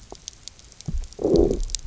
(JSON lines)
{"label": "biophony, low growl", "recorder": "SoundTrap 300"}